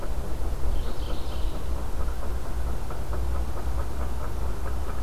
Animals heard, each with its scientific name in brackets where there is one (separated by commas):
Mourning Warbler (Geothlypis philadelphia)